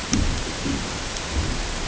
{"label": "ambient", "recorder": "HydroMoth"}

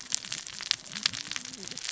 {"label": "biophony, cascading saw", "recorder": "SoundTrap 600 or HydroMoth"}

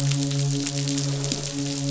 {"label": "biophony, midshipman", "recorder": "SoundTrap 500"}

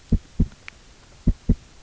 {"label": "biophony, knock", "recorder": "SoundTrap 300"}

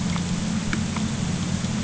{"label": "anthrophony, boat engine", "recorder": "HydroMoth"}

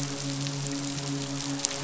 {"label": "biophony, midshipman", "recorder": "SoundTrap 500"}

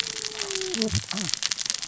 {"label": "biophony, cascading saw", "recorder": "SoundTrap 600 or HydroMoth"}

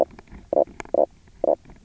{"label": "biophony, knock croak", "recorder": "SoundTrap 300"}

